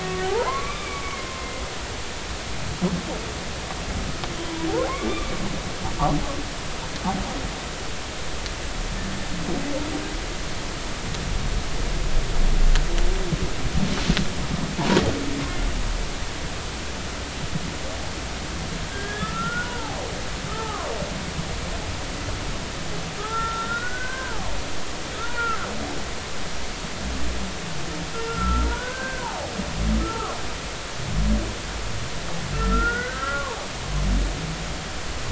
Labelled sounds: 0.0	1.5	humpback whale, 0.80 to 2.4 kHz
4.9	5.3	humpback whale, 0.96 to 2.4 kHz
18.9	20.9	humpback whale, 0.80 to 3.6 kHz
23.2	24.5	humpback whale, 0.80 to 3.8 kHz
25.2	25.7	humpback whale, 0.90 to 1.5 kHz
28.1	29.5	humpback whale, 0.80 to 1.7 kHz
30.0	30.3	humpback whale, 0.99 to 1.4 kHz
32.5	33.6	humpback whale, 0.80 to 1.7 kHz

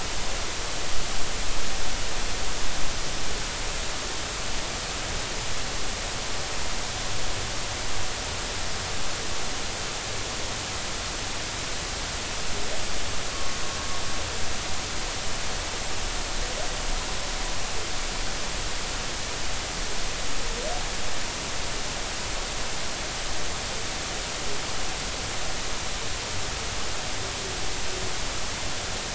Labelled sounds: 13.3	13.6	humpback whale, 1.1 to 1.2 kHz

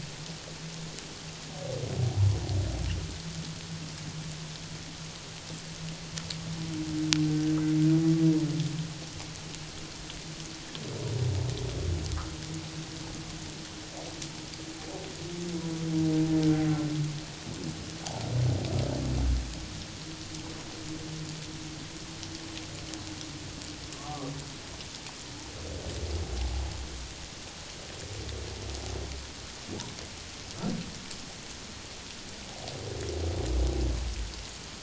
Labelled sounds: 23.9	24.3	humpback whale, 1.0 to 1.2 kHz

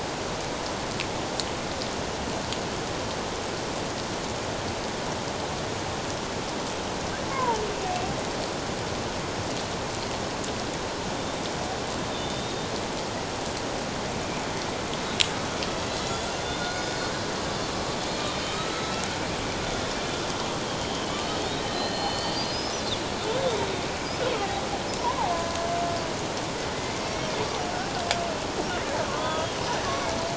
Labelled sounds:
7.3	7.6	killer whale, Bigg's (transient), 0.84 to 1.1 kHz
12.1	12.7	killer whale, Bigg's (transient), 3.5 to 3.8 kHz
16.4	16.8	killer whale, Bigg's (transient), 1.4 to 3.7 kHz
18.1	19.1	killer whale, Bigg's (transient), 1.2 to 4.0 kHz
20.8	22.8	killer whale, Bigg's (transient), 1.1 to 5.2 kHz
25.0	25.3	killer whale, Bigg's (transient), 0.78 to 1.2 kHz
29.1	30.2	killer whale, Bigg's (transient), 0.94 to 3.5 kHz

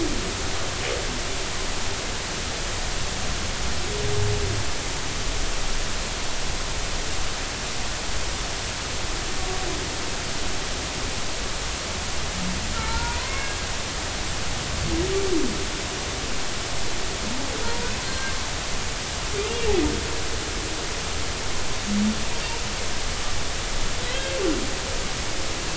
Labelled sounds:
12.7	13.5	humpback whale, 0.86 to 2.2 kHz
17.6	17.9	humpback whale, 0.90 to 0.99 kHz

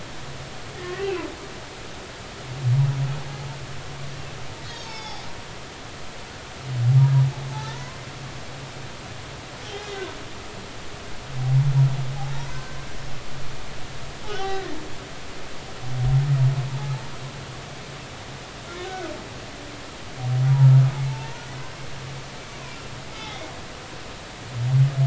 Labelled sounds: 0.7	1.2	humpback whale, 1.7 to 2.9 kHz
4.6	5.2	humpback whale, 0.80 to 6.7 kHz
7.7	8.0	humpback whale, 0.93 to 1.1 kHz
12.5	12.8	humpback whale, 1.5 to 1.6 kHz
14.3	14.8	humpback whale, 0.80 to 3.2 kHz
18.9	19.1	humpback whale, 1.4 to 1.6 kHz
21.1	21.4	humpback whale, 0.83 to 0.99 kHz
22.4	23.4	humpback whale, 2.0 to 6.3 kHz

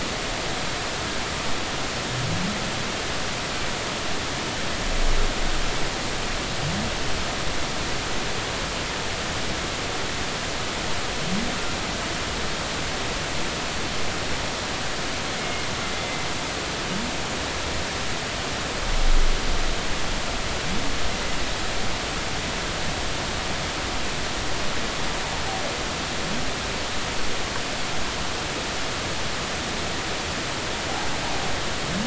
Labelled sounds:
15.4	15.7	humpback whale, 2.1 to 2.2 kHz
16.0	16.2	humpback whale, 2.0 to 2.1 kHz

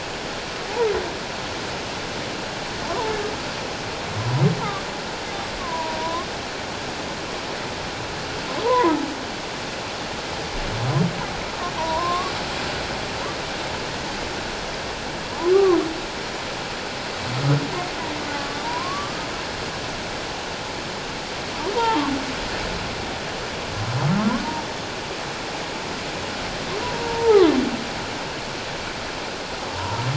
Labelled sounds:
5.6	6.3	humpback whale, 0.88 to 1.2 kHz
8.6	9.0	humpback whale, 0.81 to 1.1 kHz
11.7	12.3	humpback whale, 0.81 to 1.2 kHz
15.5	15.8	humpback whale, 0.97 to 1.2 kHz
18.6	19.3	humpback whale, 0.88 to 1.3 kHz
21.7	22.0	humpback whale, 0.81 to 1.1 kHz
26.8	27.5	humpback whale, 0.78 to 1.0 kHz

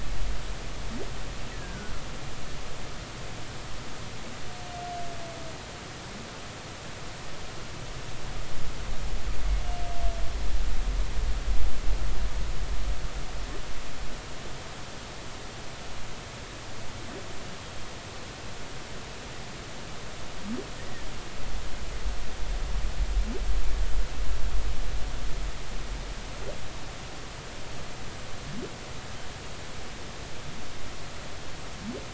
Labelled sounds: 1.5	1.9	humpback whale, 1.4 to 2.0 kHz

